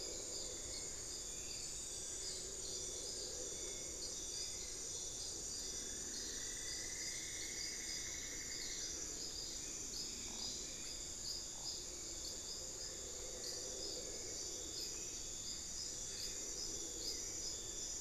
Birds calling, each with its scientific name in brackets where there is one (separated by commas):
Hauxwell's Thrush (Turdus hauxwelli), Cinnamon-throated Woodcreeper (Dendrexetastes rufigula), Bartlett's Tinamou (Crypturellus bartletti)